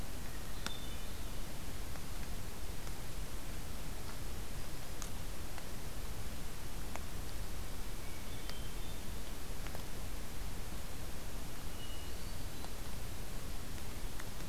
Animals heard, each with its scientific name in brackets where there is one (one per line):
Hermit Thrush (Catharus guttatus)